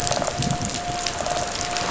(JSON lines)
{"label": "biophony", "recorder": "SoundTrap 500"}